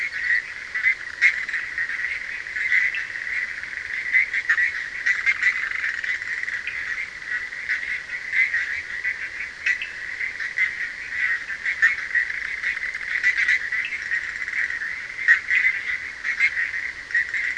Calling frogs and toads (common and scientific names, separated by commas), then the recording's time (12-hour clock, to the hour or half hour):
Bischoff's tree frog (Boana bischoffi), Cochran's lime tree frog (Sphaenorhynchus surdus)
~2am